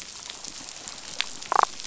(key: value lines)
label: biophony, damselfish
recorder: SoundTrap 500